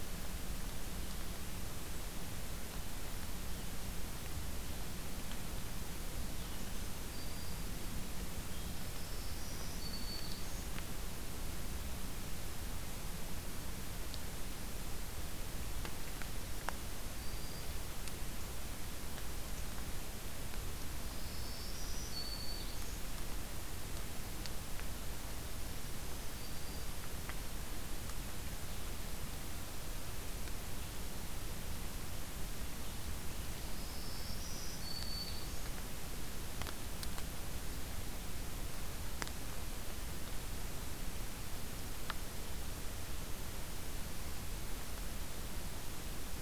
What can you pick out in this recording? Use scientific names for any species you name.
Setophaga virens